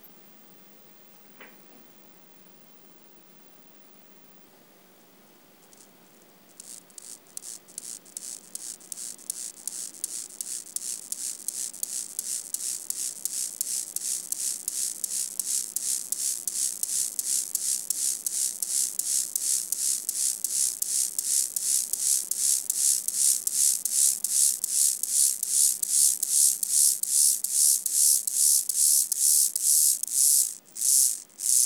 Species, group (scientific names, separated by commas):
Chorthippus mollis, Orthoptera